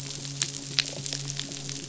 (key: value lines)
label: biophony, midshipman
recorder: SoundTrap 500

label: biophony
recorder: SoundTrap 500